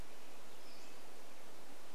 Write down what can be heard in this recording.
Pacific-slope Flycatcher call, Red-breasted Nuthatch song